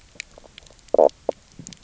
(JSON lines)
{"label": "biophony, knock croak", "recorder": "SoundTrap 300"}